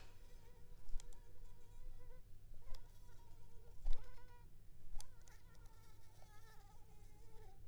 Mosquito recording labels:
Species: Anopheles arabiensis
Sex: female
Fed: unfed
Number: one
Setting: cup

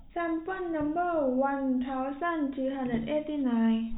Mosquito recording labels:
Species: no mosquito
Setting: cup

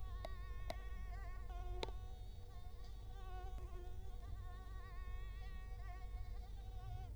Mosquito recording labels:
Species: Culex quinquefasciatus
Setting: cup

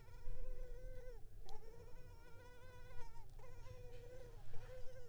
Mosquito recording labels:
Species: Culex pipiens complex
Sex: female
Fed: unfed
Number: one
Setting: cup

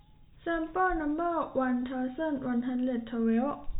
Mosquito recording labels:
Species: no mosquito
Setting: cup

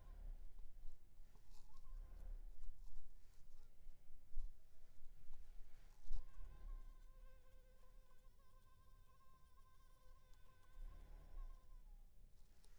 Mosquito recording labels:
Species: Culex pipiens complex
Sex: female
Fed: unfed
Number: one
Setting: cup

